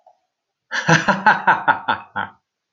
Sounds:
Laughter